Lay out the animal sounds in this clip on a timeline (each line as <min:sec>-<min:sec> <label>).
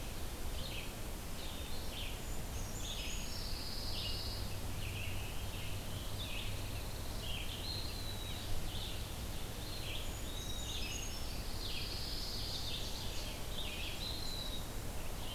0:00.0-0:07.7 Red-eyed Vireo (Vireo olivaceus)
0:02.0-0:03.5 Brown Creeper (Certhia americana)
0:03.2-0:04.5 Pine Warbler (Setophaga pinus)
0:05.4-0:07.2 Pine Warbler (Setophaga pinus)
0:07.5-0:08.4 Eastern Wood-Pewee (Contopus virens)
0:08.4-0:15.3 Red-eyed Vireo (Vireo olivaceus)
0:09.8-0:11.3 Brown Creeper (Certhia americana)
0:10.1-0:11.0 Eastern Wood-Pewee (Contopus virens)
0:11.2-0:12.7 Pine Warbler (Setophaga pinus)
0:11.6-0:13.6 Ovenbird (Seiurus aurocapilla)
0:13.8-0:14.9 Eastern Wood-Pewee (Contopus virens)